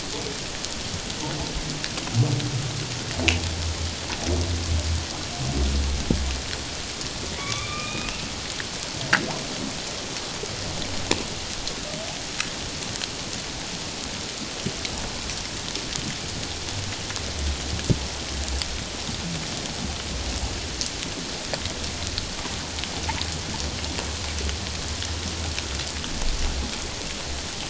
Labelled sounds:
7.4	8.1	humpback whale, 1.1 to 2.6 kHz

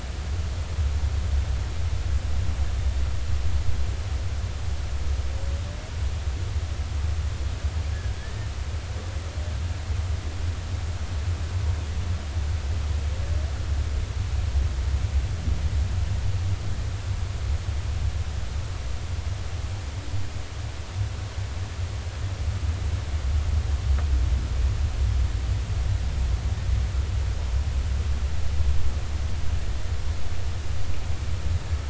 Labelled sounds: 8.2	8.5	humpback whale, 1.7 to 1.9 kHz

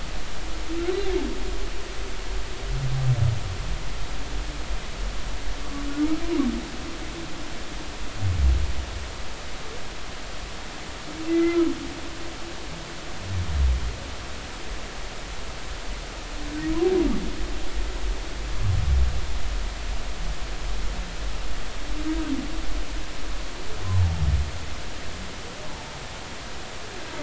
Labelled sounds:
11.3	11.7	humpback whale, 1.2 to 2.1 kHz

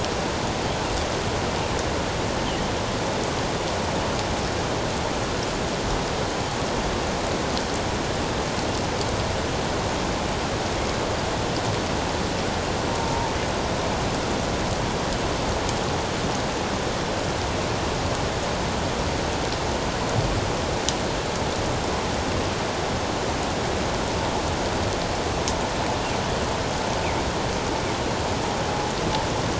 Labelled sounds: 13.0	13.3	killer whale, northern resident, 0.84 to 0.97 kHz

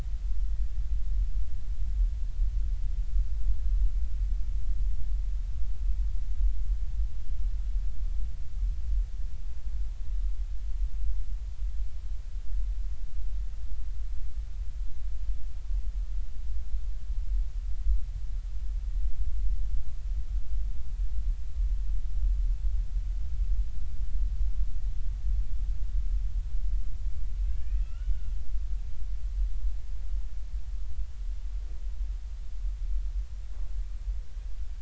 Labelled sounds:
27.4	28.2	killer whale, Bigg's (transient), 1.3 to 3.0 kHz

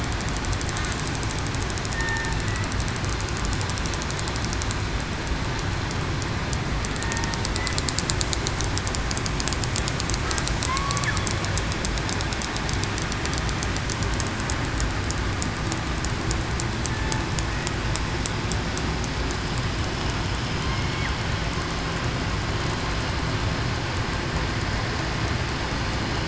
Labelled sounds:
1.9	2.3	killer whale, southern resident, 1.8 to 1.9 kHz
10.7	11.0	killer whale, southern resident, 1.0 to 1.1 kHz
20.7	21.1	killer whale, southern resident, 2.1 to 2.2 kHz

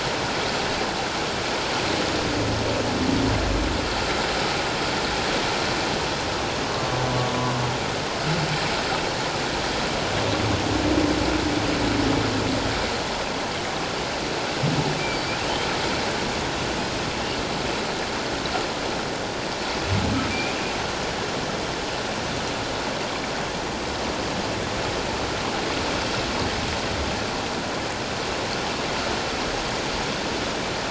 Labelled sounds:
20.3	20.6	humpback whale, 2.3 to 2.5 kHz

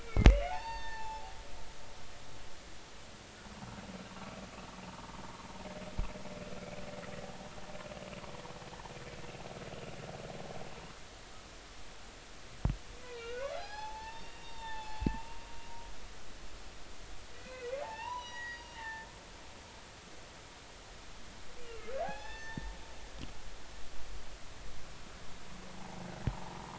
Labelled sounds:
0.0	1.4	humpback whale, 0.80 to 6.4 kHz
13.0	15.3	humpback whale, 0.80 to 6.0 kHz
17.3	19.1	humpback whale, 0.80 to 5.9 kHz
21.7	22.7	humpback whale, 0.80 to 3.6 kHz

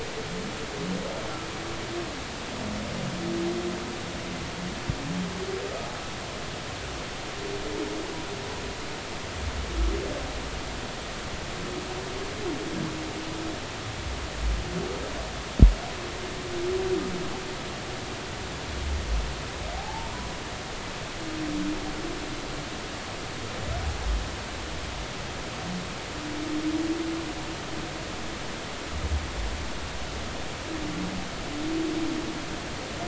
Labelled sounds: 19.8	20.1	humpback whale, 0.80 to 0.96 kHz

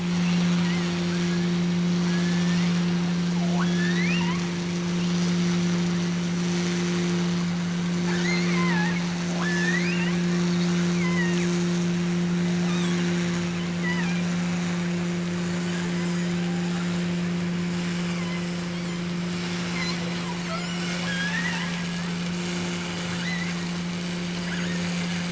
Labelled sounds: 1.1	1.8	killer whale, offshore, 1.1 to 2.3 kHz
2.1	3.0	killer whale, offshore, 1.4 to 2.9 kHz
3.4	4.6	killer whale, offshore, 0.52 to 4.3 kHz
8.0	10.3	killer whale, offshore, 0.59 to 7.0 kHz
10.8	11.6	killer whale, offshore, 0.73 to 3.6 kHz
12.6	13.2	killer whale, offshore, 0.80 to 8.0 kHz
13.7	14.3	killer whale, offshore, 0.57 to 3.2 kHz
15.4	16.4	killer whale, offshore, 1.2 to 5.2 kHz
17.8	19.2	killer whale, offshore, 0.84 to 4.7 kHz
19.5	22.2	killer whale, offshore, 0.66 to 7.7 kHz
23.0	23.6	killer whale, offshore, 1.0 to 4.2 kHz
24.5	25.2	killer whale, offshore, 1.1 to 2.7 kHz

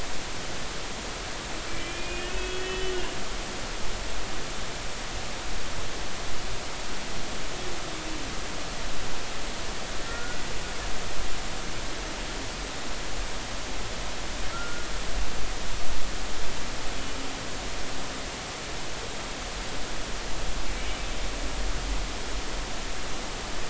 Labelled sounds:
1.7	2.9	humpback whale, 1.4 to 3.4 kHz
10.1	10.4	humpback whale, 1.3 to 1.5 kHz
14.5	14.9	humpback whale, 1.3 to 1.5 kHz

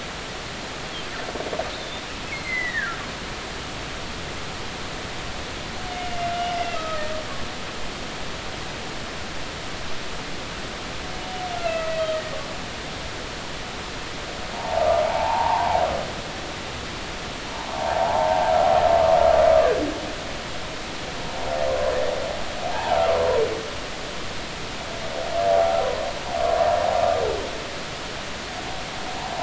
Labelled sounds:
1.7	2.0	humpback whale, 3.5 to 3.8 kHz
2.3	3.0	humpback whale, 1.3 to 4.3 kHz
6.7	7.0	humpback whale, 1.2 to 1.3 kHz
11.6	12.0	humpback whale, 1.2 to 2.8 kHz
14.5	15.8	humpback whale, 0.80 to 1.1 kHz
17.7	18.5	humpback whale, 0.80 to 1.1 kHz
22.7	23.0	humpback whale, 0.80 to 0.99 kHz

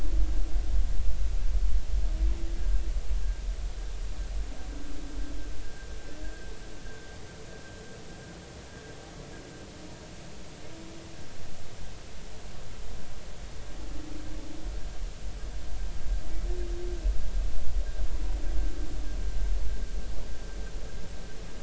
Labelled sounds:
2.5	2.8	humpback whale, 1.5 to 1.7 kHz
5.6	5.9	humpback whale, 1.5 to 1.7 kHz

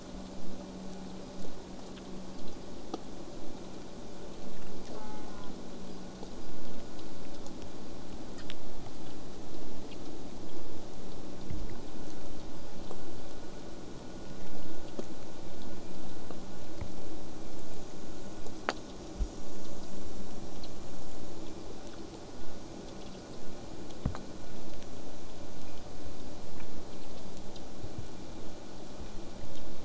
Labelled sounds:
4.9	5.5	killer whale, southern resident, J pod, call S04, 0.62 to 2.4 kHz

